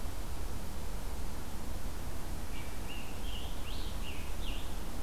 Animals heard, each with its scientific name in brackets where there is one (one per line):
Scarlet Tanager (Piranga olivacea)